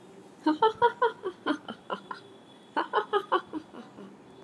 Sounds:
Laughter